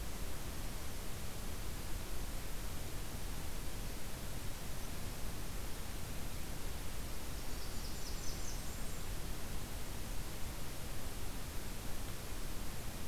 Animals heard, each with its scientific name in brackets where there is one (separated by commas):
Black-throated Green Warbler (Setophaga virens)